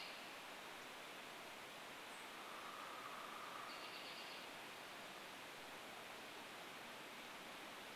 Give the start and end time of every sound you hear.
[0, 6] American Robin call
[2, 4] woodpecker drumming

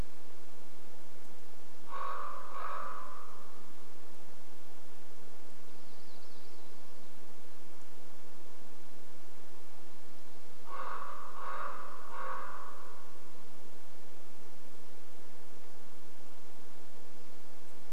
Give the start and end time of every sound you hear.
[0, 4] Common Raven call
[4, 8] warbler song
[10, 14] Common Raven call

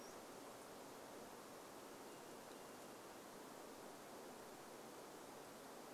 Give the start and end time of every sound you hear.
[0, 2] Pacific-slope Flycatcher call
[2, 4] Varied Thrush song

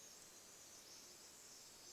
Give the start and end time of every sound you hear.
[0, 2] Pacific Wren song
[0, 2] insect buzz

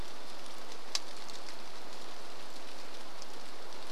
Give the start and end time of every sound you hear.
[0, 2] Varied Thrush song
[0, 4] rain

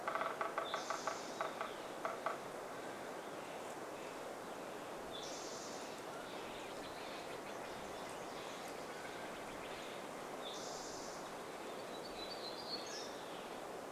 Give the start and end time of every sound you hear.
[0, 2] Olive-sided Flycatcher song
[0, 2] Spotted Towhee song
[0, 4] woodpecker drumming
[2, 4] Mountain Quail call
[2, 10] Steller's Jay call
[4, 6] Spotted Towhee song
[6, 10] Mountain Quail call
[10, 12] Spotted Towhee song
[10, 14] warbler song
[12, 14] Mountain Quail call
[12, 14] Steller's Jay call

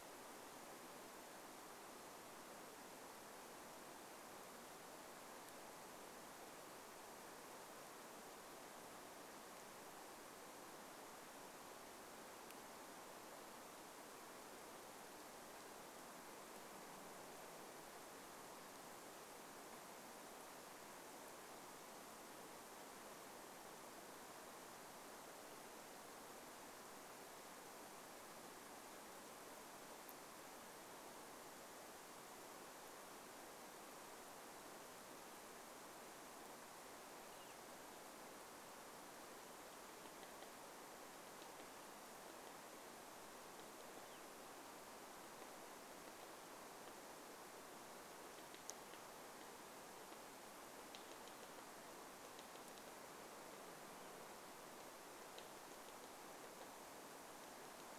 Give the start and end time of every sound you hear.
[36, 38] Northern Flicker call
[40, 44] woodpecker drumming
[44, 46] Northern Flicker call
[46, 58] woodpecker drumming

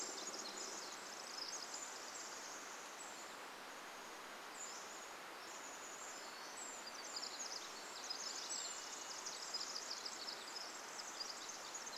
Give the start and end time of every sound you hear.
[0, 2] woodpecker drumming
[0, 10] Brown Creeper call
[0, 12] Pacific Wren song
[2, 4] unidentified sound
[4, 6] Pacific-slope Flycatcher song
[8, 10] Varied Thrush song

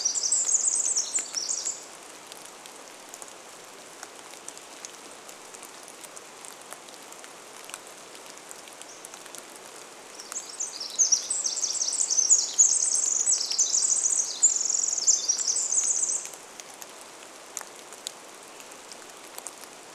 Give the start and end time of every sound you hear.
[0, 2] Pacific Wren song
[0, 20] rain
[10, 18] Pacific Wren song

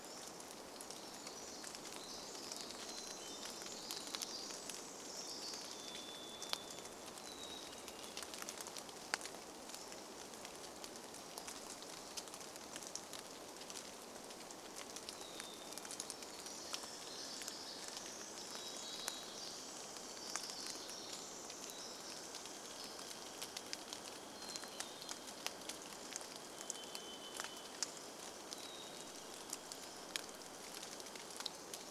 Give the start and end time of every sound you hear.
[0, 8] Pacific Wren song
[0, 32] rain
[2, 4] Hermit Thrush song
[4, 8] Varied Thrush song
[6, 8] Golden-crowned Kinglet song
[6, 12] Hermit Thrush song
[14, 16] Hermit Thrush song
[16, 24] Pacific Wren song
[18, 20] Varied Thrush song
[24, 26] Hermit Thrush song
[26, 28] Varied Thrush song
[28, 30] Hermit Thrush song
[30, 32] Pacific Wren song

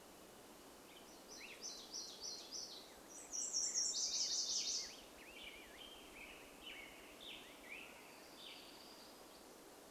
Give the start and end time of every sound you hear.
[0, 4] warbler song
[0, 8] Black-headed Grosbeak song
[2, 6] Nashville Warbler song
[4, 10] Western Tanager song
[8, 10] warbler song

